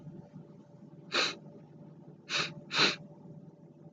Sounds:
Sniff